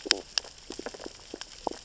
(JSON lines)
{"label": "biophony, stridulation", "recorder": "SoundTrap 600 or HydroMoth"}
{"label": "biophony, sea urchins (Echinidae)", "recorder": "SoundTrap 600 or HydroMoth"}